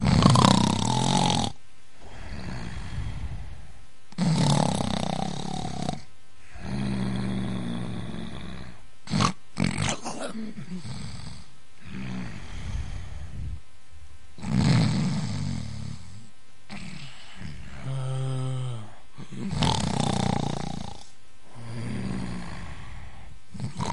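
0.0s A person snores with muffled, raspy bursts in a low-high pitch periodic rhythm indoors. 23.9s

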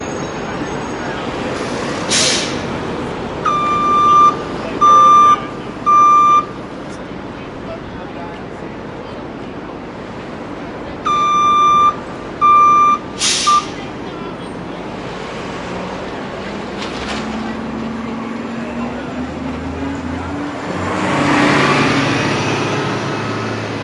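0.0s A vehicle brakes with screeching sounds. 2.0s
0.0s Conversations muffled in the background. 23.8s
0.0s General traffic noise with faint sounds of vehicles passing by. 23.8s
2.0s The hydraulics of a bus release air. 2.6s
3.4s A high-pitched beeping sound repeats. 6.6s
4.7s A car horn honks. 5.3s
11.0s A high-pitched beeping sound repeats. 13.7s
13.1s The hydraulics of a bus release air. 13.4s
19.6s A car horn honks. 20.3s
20.6s A large vehicle drives past nearby. 23.8s

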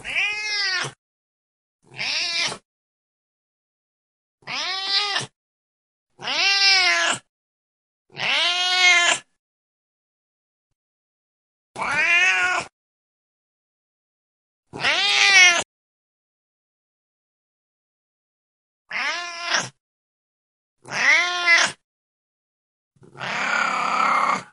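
0.0s A high-pitched feline meow that gradually increases in pitch. 0.9s
2.0s A short, high-pitched feline meow gradually increasing in pitch. 2.6s
4.5s A high-pitched feline meow that gradually increases in volume. 5.3s
6.2s A high-pitched feline meow that gradually increases in volume. 7.2s
8.2s A high-pitched feline meow that gradually increases in volume. 9.3s
11.8s A high-pitched feline meowing that gradually increases. 12.7s
14.7s A high-pitched feline meow that gradually increases in volume. 15.7s
18.9s A high-pitched feline meow that gradually increases in volume. 19.8s
20.9s A high-pitched feline meow that gradually increases in volume. 21.8s
23.2s A high-pitched feline meow that gradually increases in volume. 24.5s

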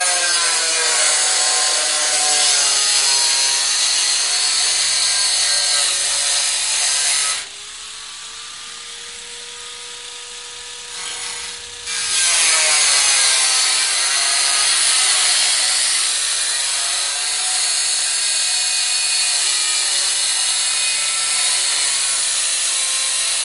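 0.0s An electric saw is cutting. 7.4s
7.4s An electric saw engine running without cutting. 11.8s
11.8s An electric saw is cutting. 23.4s

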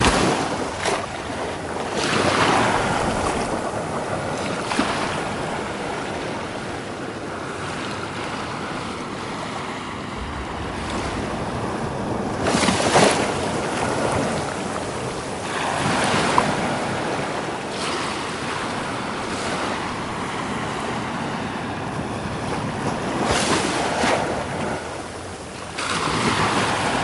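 1.4s Ocean waves crashing at the seashore. 5.6s
11.8s Waves splash, lap, and crash against the shore, creating a rhythmic and ambient coastal soundscape. 25.0s

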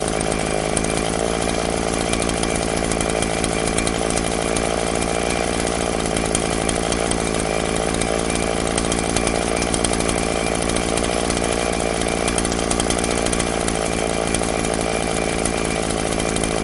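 0.0s Engine exhaust sound from a small fossil fuel vehicle, low, monotone, and repetitive. 16.6s

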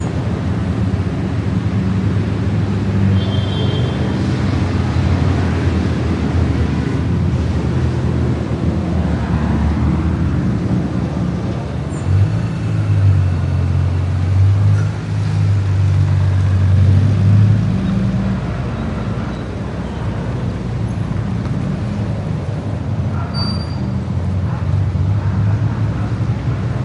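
0.2s Traffic hums steadily with occasional car horns honking in the city. 11.6s
12.1s An engine starts as a car passes by on the street. 18.6s
19.0s Traffic hums steadily in the street while dogs bark and birds chirp in the background, and a pedestrian walks softly. 26.7s

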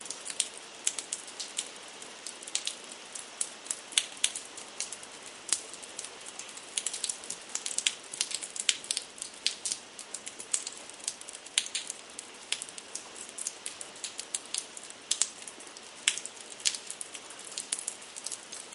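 0.1s Sharp, echoing drips of rainwater hitting a hard tile floor create a distinct tapping sound that repeats steadily in an outdoor space. 18.7s

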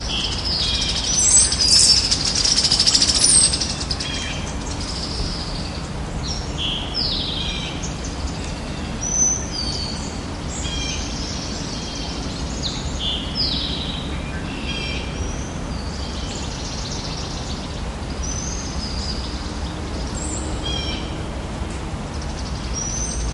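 0.0s Static humming sound from passing traffic with constant volume. 23.3s
0.0s Various birds tweeting, with some louder and others more in the background. 23.3s

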